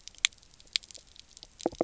{"label": "biophony, knock croak", "recorder": "SoundTrap 300"}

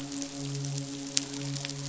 {"label": "biophony, midshipman", "recorder": "SoundTrap 500"}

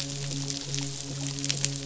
{"label": "biophony, midshipman", "recorder": "SoundTrap 500"}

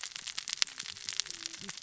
{"label": "biophony, cascading saw", "recorder": "SoundTrap 600 or HydroMoth"}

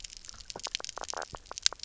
{"label": "biophony, knock croak", "recorder": "SoundTrap 300"}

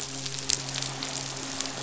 {"label": "biophony, midshipman", "recorder": "SoundTrap 500"}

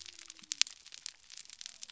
{"label": "biophony", "recorder": "SoundTrap 300"}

